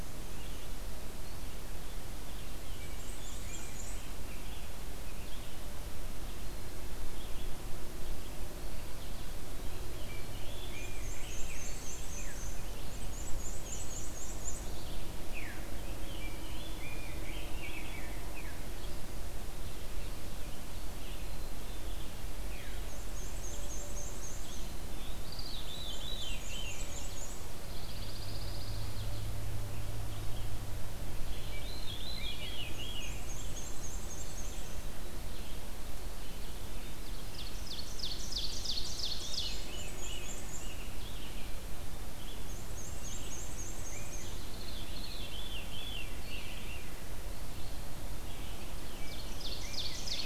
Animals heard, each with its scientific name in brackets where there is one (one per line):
Pine Warbler (Setophaga pinus)
Rose-breasted Grosbeak (Pheucticus ludovicianus)
Black-and-white Warbler (Mniotilta varia)
Ovenbird (Seiurus aurocapilla)
Black-capped Chickadee (Poecile atricapillus)
Red-eyed Vireo (Vireo olivaceus)
Veery (Catharus fuscescens)